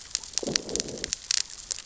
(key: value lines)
label: biophony, growl
recorder: SoundTrap 600 or HydroMoth